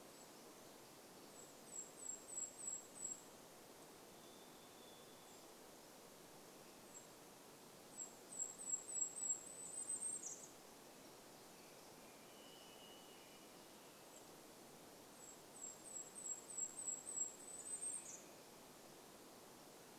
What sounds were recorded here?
Golden-crowned Kinglet song, Varied Thrush song, Golden-crowned Kinglet call, Pacific Wren song, American Robin song